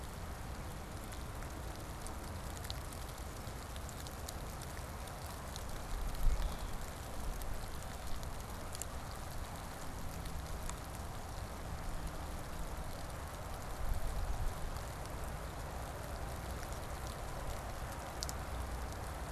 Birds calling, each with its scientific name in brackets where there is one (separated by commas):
Red-winged Blackbird (Agelaius phoeniceus)